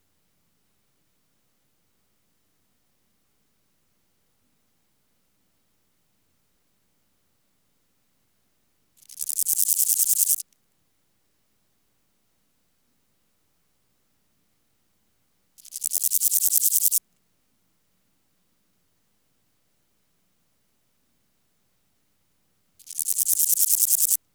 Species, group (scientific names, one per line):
Pseudochorthippus parallelus
Orthoptera